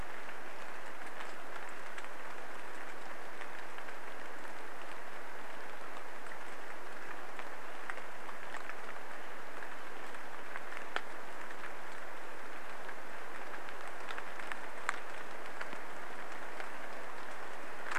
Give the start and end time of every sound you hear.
0s-2s: Swainson's Thrush call
0s-18s: rain
8s-10s: Swainson's Thrush call

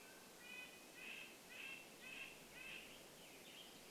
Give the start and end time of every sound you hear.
0s-4s: Red-breasted Nuthatch song
0s-4s: Western Tanager song

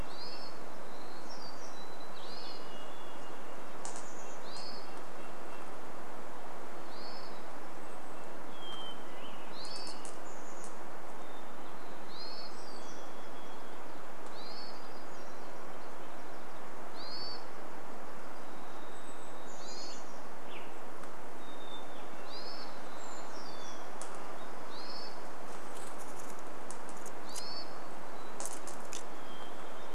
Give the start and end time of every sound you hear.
0s-2s: warbler song
0s-4s: Hermit Thrush song
0s-10s: Hermit Thrush call
4s-6s: Chestnut-backed Chickadee call
4s-10s: Red-breasted Nuthatch song
8s-12s: Hermit Thrush song
10s-12s: Chestnut-backed Chickadee call
12s-14s: Varied Thrush song
12s-14s: warbler song
12s-20s: Hermit Thrush call
18s-20s: Brown Creeper call
18s-20s: Chestnut-backed Chickadee call
18s-20s: Varied Thrush song
20s-22s: Western Tanager song
20s-24s: Hermit Thrush song
22s-24s: Brown Creeper call
22s-24s: warbler song
22s-28s: Hermit Thrush call
28s-30s: Hermit Thrush song

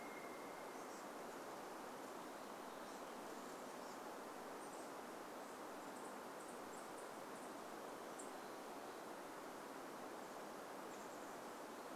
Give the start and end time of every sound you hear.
0s-2s: Pileated Woodpecker call
0s-12s: Chestnut-backed Chickadee call

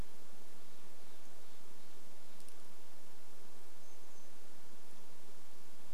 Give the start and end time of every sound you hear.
0s-2s: Steller's Jay call
2s-6s: Brown Creeper call

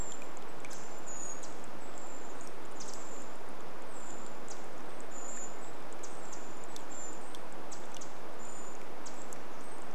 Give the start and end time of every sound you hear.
0s-6s: rain
0s-10s: Brown Creeper call
0s-10s: Pacific Wren call

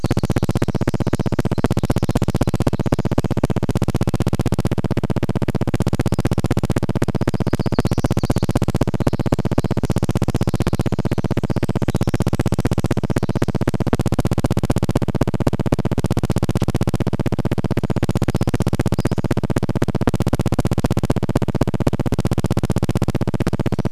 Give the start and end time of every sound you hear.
0s-4s: Pacific Wren song
0s-24s: recorder noise
2s-4s: Red-breasted Nuthatch song
6s-8s: warbler song
8s-14s: Pacific Wren song
10s-12s: insect buzz
16s-18s: Brown Creeper call
18s-20s: Pacific-slope Flycatcher call

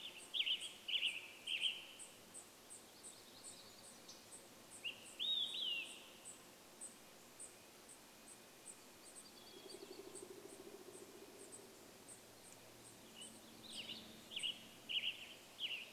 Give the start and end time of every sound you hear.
0s-2s: Western Tanager song
0s-16s: unidentified bird chip note
2s-4s: warbler song
4s-6s: Olive-sided Flycatcher song
6s-14s: Red-breasted Nuthatch song
8s-10s: Hermit Thrush song
8s-10s: warbler song
8s-12s: woodpecker drumming
12s-16s: Western Tanager song

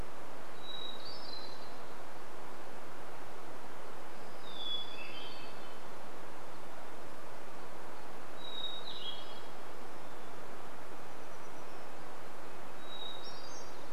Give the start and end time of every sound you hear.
0s-2s: Hermit Thrush song
4s-6s: Hermit Thrush song
4s-6s: warbler song
6s-8s: unidentified bird chip note
8s-10s: Hermit Thrush song
10s-12s: Hermit Warbler song
10s-14s: Red-breasted Nuthatch song
12s-14s: Hermit Thrush song

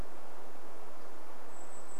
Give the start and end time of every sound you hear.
0s-2s: Brown Creeper call

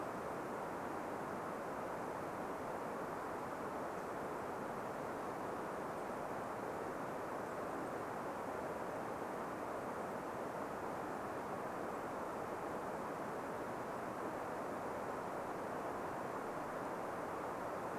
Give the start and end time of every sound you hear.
4s-10s: Golden-crowned Kinglet call
16s-18s: Golden-crowned Kinglet call

